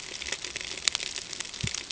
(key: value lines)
label: ambient
recorder: HydroMoth